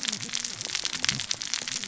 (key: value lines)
label: biophony, cascading saw
recorder: SoundTrap 600 or HydroMoth